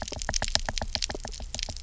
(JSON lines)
{"label": "biophony, knock", "recorder": "SoundTrap 300"}